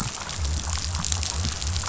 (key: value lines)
label: biophony
recorder: SoundTrap 500